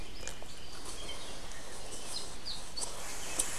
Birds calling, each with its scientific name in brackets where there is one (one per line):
Apapane (Himatione sanguinea)